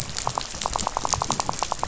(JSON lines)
{"label": "biophony, rattle", "recorder": "SoundTrap 500"}